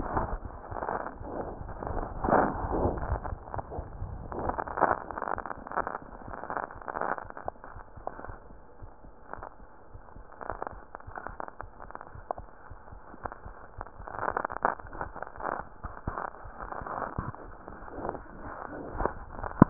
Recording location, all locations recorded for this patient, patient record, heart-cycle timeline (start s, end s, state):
aortic valve (AV)
aortic valve (AV)+mitral valve (MV)
#Age: Neonate
#Sex: Female
#Height: 47.0 cm
#Weight: 2.8160000000000003 kg
#Pregnancy status: False
#Murmur: Absent
#Murmur locations: nan
#Most audible location: nan
#Systolic murmur timing: nan
#Systolic murmur shape: nan
#Systolic murmur grading: nan
#Systolic murmur pitch: nan
#Systolic murmur quality: nan
#Diastolic murmur timing: nan
#Diastolic murmur shape: nan
#Diastolic murmur grading: nan
#Diastolic murmur pitch: nan
#Diastolic murmur quality: nan
#Outcome: Normal
#Campaign: 2015 screening campaign
0.00	7.71	unannotated
7.71	7.84	S1
7.84	7.96	systole
7.96	8.06	S2
8.06	8.28	diastole
8.28	8.38	S1
8.38	8.50	systole
8.50	8.58	S2
8.58	8.82	diastole
8.82	8.92	S1
8.92	9.04	systole
9.04	9.12	S2
9.12	9.34	diastole
9.34	9.44	S1
9.44	9.58	systole
9.58	9.68	S2
9.68	9.94	diastole
9.94	10.04	S1
10.04	10.16	systole
10.16	10.26	S2
10.26	10.50	diastole
10.50	10.60	S1
10.60	10.72	systole
10.72	10.82	S2
10.82	11.04	diastole
11.04	11.14	S1
11.14	11.28	systole
11.28	11.38	S2
11.38	11.62	diastole
11.62	11.72	S1
11.72	11.84	systole
11.84	11.92	S2
11.92	12.14	diastole
12.14	12.24	S1
12.24	12.38	systole
12.38	12.48	S2
12.48	12.72	diastole
12.72	12.80	S1
12.80	12.92	systole
12.92	13.02	S2
13.02	13.22	diastole
13.22	13.34	S1
13.34	13.46	systole
13.46	13.56	S2
13.56	13.78	diastole
13.78	13.88	S1
13.88	14.00	systole
14.00	14.10	S2
14.10	19.70	unannotated